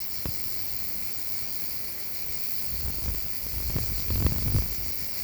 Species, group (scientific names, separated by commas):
Gampsocleis glabra, Orthoptera